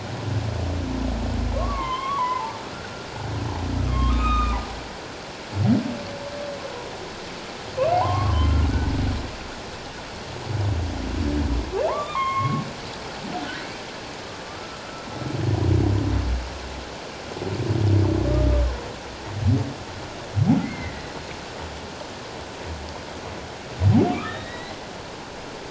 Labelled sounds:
1.5	3.1	humpback whale, 0.81 to 3.3 kHz
3.9	4.6	humpback whale, 1.0 to 3.8 kHz
7.9	8.6	humpback whale, 0.78 to 3.3 kHz
11.9	12.6	humpback whale, 0.81 to 3.7 kHz
13.4	14.8	humpback whale, 1.1 to 1.6 kHz
20.6	21.0	humpback whale, 1.8 to 2.2 kHz
24.1	24.8	humpback whale, 1.1 to 4.2 kHz

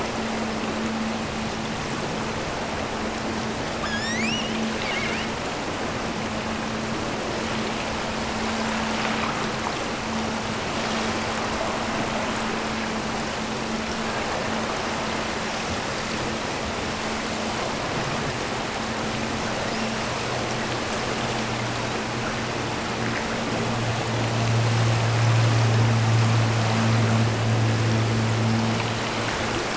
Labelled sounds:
3.8	5.4	killer whale, offshore, 0.98 to 8.0 kHz

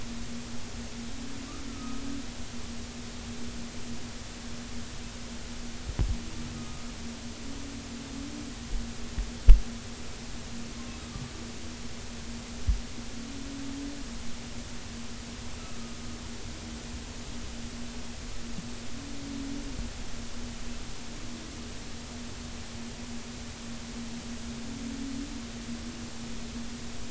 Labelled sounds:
1.7	2.0	humpback whale, 1.2 to 1.4 kHz
6.6	6.8	humpback whale, 1.2 to 1.3 kHz

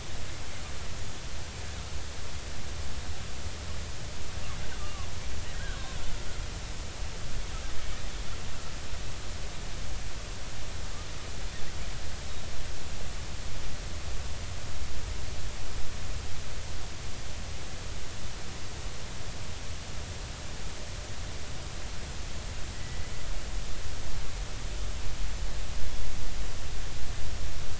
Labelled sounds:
4.8	5.8	killer whale, Bigg's (transient), 1.0 to 1.7 kHz
22.7	23.0	killer whale, Bigg's (transient), 1.9 to 2.0 kHz

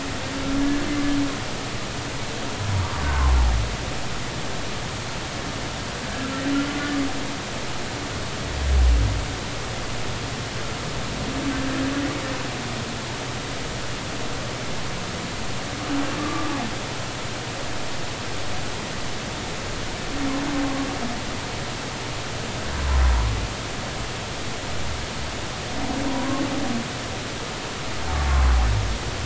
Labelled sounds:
16.2	16.5	humpback whale, 1.1 to 1.2 kHz
26.1	26.4	humpback whale, 0.93 to 1.1 kHz

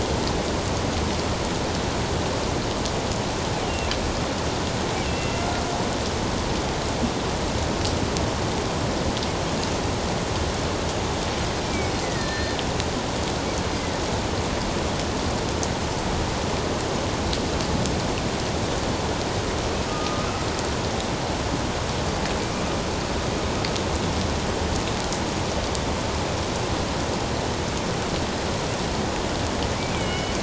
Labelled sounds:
3.6	3.9	killer whale, northern resident, A clan, AB subclan, 2.6 to 3.0 kHz
5.0	5.5	killer whale, northern resident, A clan, AB subclan, 2.0 to 2.8 kHz
11.7	12.6	killer whale, northern resident, A clan, AB subclan, 1.7 to 4.3 kHz
13.7	14.0	killer whale, northern resident, A clan, AB subclan, 1.8 to 2.1 kHz
19.9	20.3	killer whale, northern resident, A clan, AB subclan, 1.2 to 1.3 kHz
29.9	30.4	killer whale, northern resident, A clan, AB subclan, 2.1 to 3.1 kHz

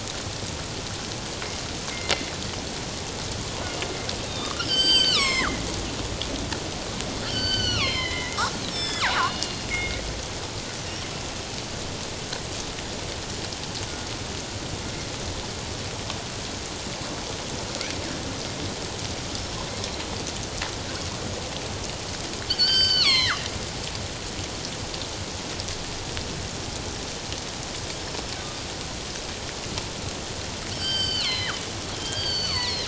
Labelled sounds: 4.3	5.6	killer whale, northern resident, G clan, 0.97 to 8.0 kHz
7.3	8.4	killer whale, northern resident, G clan, 1.0 to 6.1 kHz
8.7	10.0	killer whale, northern resident, G clan, 0.78 to 7.9 kHz
22.5	23.4	killer whale, northern resident, G clan, 0.91 to 6.2 kHz
30.7	32.8	killer whale, northern resident, G clan, 0.94 to 7.9 kHz

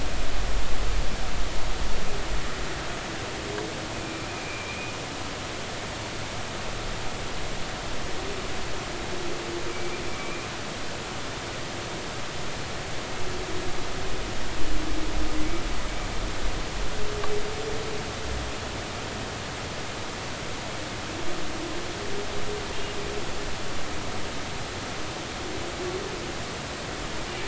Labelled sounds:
3.9	4.9	humpback whale, 2.2 to 2.6 kHz
10.1	10.5	humpback whale, 2.2 to 2.5 kHz

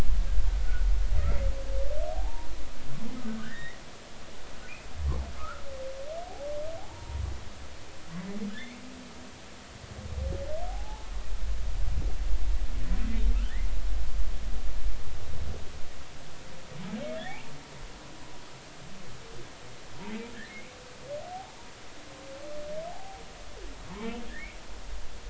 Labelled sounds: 0.6	0.9	humpback whale, 1.4 to 1.5 kHz
2.1	2.5	humpback whale, 0.80 to 0.99 kHz
3.4	3.8	humpback whale, 1.4 to 2.2 kHz
5.4	5.6	humpback whale, 1.1 to 1.5 kHz
6.8	7.2	humpback whale, 0.80 to 0.99 kHz
10.7	11.1	humpback whale, 0.80 to 0.99 kHz
17.2	17.5	humpback whale, 0.80 to 2.0 kHz
20.5	20.7	humpback whale, 2.1 to 2.5 kHz
22.9	23.2	humpback whale, 0.80 to 0.93 kHz
24.3	24.6	humpback whale, 1.6 to 2.5 kHz

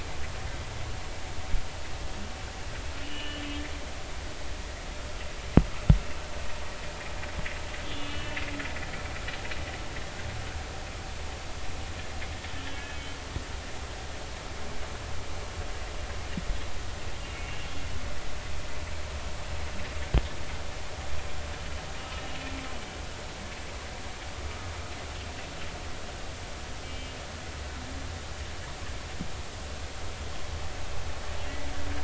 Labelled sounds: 3.0	3.4	humpback whale, 1.7 to 3.1 kHz
7.9	8.4	humpback whale, 2.5 to 3.6 kHz
12.7	13.2	humpback whale, 1.6 to 3.1 kHz
22.1	22.4	humpback whale, 2.8 to 2.9 kHz
26.8	27.1	humpback whale, 2.3 to 3.2 kHz

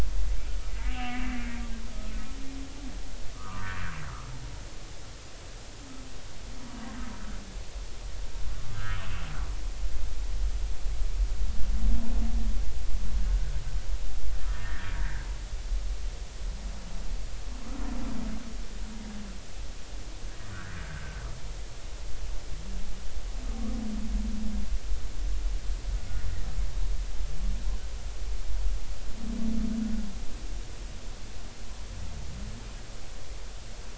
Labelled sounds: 0.7	1.6	humpback whale, 1.9 to 3.0 kHz
3.3	3.7	humpback whale, 0.90 to 1.3 kHz
8.7	9.0	humpback whale, 1.2 to 1.9 kHz
13.3	13.6	humpback whale, 1.4 to 1.7 kHz
14.5	15.3	humpback whale, 1.5 to 2.0 kHz
20.5	20.8	humpback whale, 1.3 to 2.0 kHz

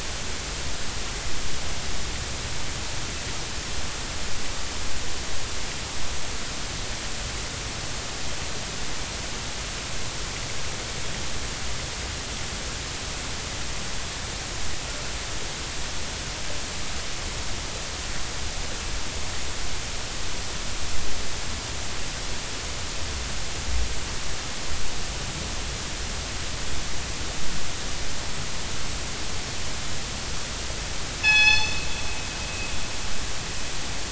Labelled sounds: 31.2	31.8	killer whale, northern resident, G clan, call N24ii, 0.80 to 6.2 kHz

